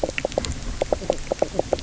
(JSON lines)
{"label": "biophony, knock croak", "recorder": "SoundTrap 300"}